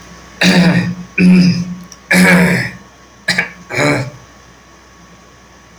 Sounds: Throat clearing